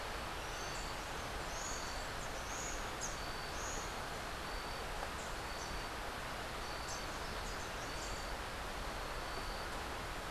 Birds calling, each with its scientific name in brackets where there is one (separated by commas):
Buff-throated Saltator (Saltator maximus), Rufous-capped Warbler (Basileuterus rufifrons)